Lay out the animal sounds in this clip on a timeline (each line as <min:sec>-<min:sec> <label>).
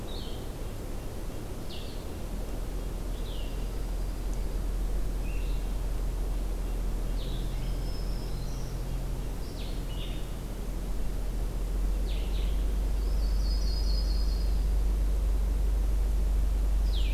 0:00.0-0:17.1 Blue-headed Vireo (Vireo solitarius)
0:03.1-0:04.6 Dark-eyed Junco (Junco hyemalis)
0:07.5-0:08.7 Black-throated Green Warbler (Setophaga virens)
0:12.8-0:14.6 Yellow-rumped Warbler (Setophaga coronata)